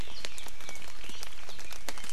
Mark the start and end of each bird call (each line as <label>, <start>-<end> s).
Red-billed Leiothrix (Leiothrix lutea), 1.6-2.1 s